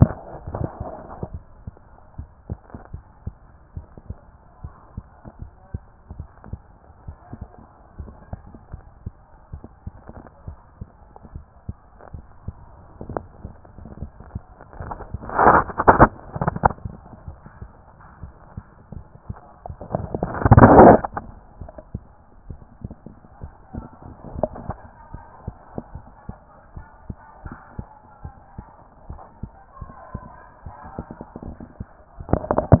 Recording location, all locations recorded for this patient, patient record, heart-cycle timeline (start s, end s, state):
mitral valve (MV)
pulmonary valve (PV)+tricuspid valve (TV)+mitral valve (MV)
#Age: Child
#Sex: Female
#Height: 142.0 cm
#Weight: 34.6 kg
#Pregnancy status: False
#Murmur: Absent
#Murmur locations: nan
#Most audible location: nan
#Systolic murmur timing: nan
#Systolic murmur shape: nan
#Systolic murmur grading: nan
#Systolic murmur pitch: nan
#Systolic murmur quality: nan
#Diastolic murmur timing: nan
#Diastolic murmur shape: nan
#Diastolic murmur grading: nan
#Diastolic murmur pitch: nan
#Diastolic murmur quality: nan
#Outcome: Abnormal
#Campaign: 2014 screening campaign
0.00	2.18	unannotated
2.18	2.30	S1
2.30	2.48	systole
2.48	2.58	S2
2.58	2.92	diastole
2.92	3.04	S1
3.04	3.24	systole
3.24	3.34	S2
3.34	3.76	diastole
3.76	3.86	S1
3.86	4.08	systole
4.08	4.16	S2
4.16	4.62	diastole
4.62	4.74	S1
4.74	4.94	systole
4.94	5.04	S2
5.04	5.40	diastole
5.40	5.52	S1
5.52	5.72	systole
5.72	5.82	S2
5.82	6.16	diastole
6.16	6.26	S1
6.26	6.48	systole
6.48	6.58	S2
6.58	7.06	diastole
7.06	7.16	S1
7.16	7.34	systole
7.34	7.46	S2
7.46	7.88	diastole
7.88	32.80	unannotated